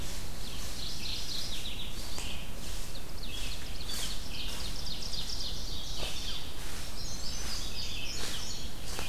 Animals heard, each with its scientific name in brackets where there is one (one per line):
Mourning Warbler (Geothlypis philadelphia)
Red-eyed Vireo (Vireo olivaceus)
Indigo Bunting (Passerina cyanea)
Ovenbird (Seiurus aurocapilla)